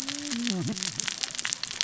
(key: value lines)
label: biophony, cascading saw
recorder: SoundTrap 600 or HydroMoth